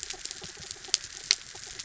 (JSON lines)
{"label": "anthrophony, mechanical", "recorder": "SoundTrap 300"}